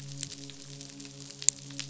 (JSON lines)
{"label": "biophony, midshipman", "recorder": "SoundTrap 500"}